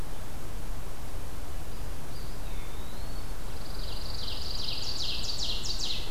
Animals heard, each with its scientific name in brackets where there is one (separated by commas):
Ovenbird (Seiurus aurocapilla), Eastern Wood-Pewee (Contopus virens), Pine Warbler (Setophaga pinus)